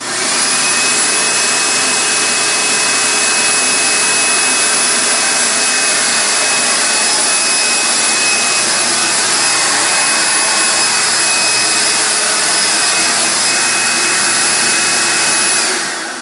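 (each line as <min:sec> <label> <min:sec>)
0:00.0 A loud whooshing sound from an industrial vacuum. 0:16.2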